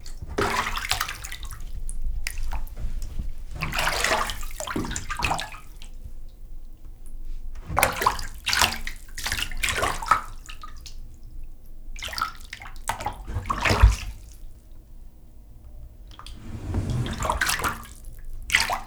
Is something on fire?
no